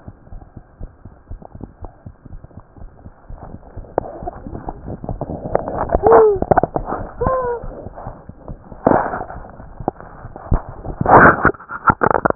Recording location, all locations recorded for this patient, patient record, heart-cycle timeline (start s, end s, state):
tricuspid valve (TV)
aortic valve (AV)+pulmonary valve (PV)+tricuspid valve (TV)+mitral valve (MV)
#Age: Child
#Sex: Male
#Height: 75.0 cm
#Weight: 10.1 kg
#Pregnancy status: False
#Murmur: Absent
#Murmur locations: nan
#Most audible location: nan
#Systolic murmur timing: nan
#Systolic murmur shape: nan
#Systolic murmur grading: nan
#Systolic murmur pitch: nan
#Systolic murmur quality: nan
#Diastolic murmur timing: nan
#Diastolic murmur shape: nan
#Diastolic murmur grading: nan
#Diastolic murmur pitch: nan
#Diastolic murmur quality: nan
#Outcome: Abnormal
#Campaign: 2015 screening campaign
0.00	0.30	unannotated
0.30	0.40	S1
0.40	0.54	systole
0.54	0.62	S2
0.62	0.79	diastole
0.79	0.90	S1
0.90	1.03	systole
1.03	1.12	S2
1.12	1.27	diastole
1.27	1.38	S1
1.38	1.53	systole
1.53	1.61	S2
1.61	1.81	diastole
1.81	1.90	S1
1.90	2.04	systole
2.04	2.14	S2
2.14	2.31	diastole
2.31	2.39	S1
2.39	2.56	systole
2.56	2.63	S2
2.63	2.79	diastole
2.79	2.88	S1
2.88	3.03	systole
3.03	3.12	S2
3.12	3.28	diastole
3.28	3.38	S1
3.38	3.51	systole
3.51	3.59	S2
3.59	3.74	diastole
3.74	3.85	S1
3.85	12.35	unannotated